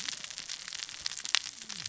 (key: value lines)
label: biophony, cascading saw
recorder: SoundTrap 600 or HydroMoth